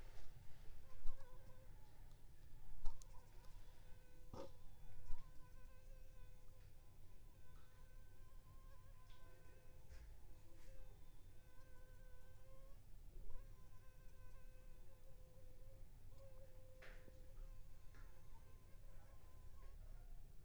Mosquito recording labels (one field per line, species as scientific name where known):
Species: Anopheles funestus s.s.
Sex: female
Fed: unfed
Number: one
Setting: cup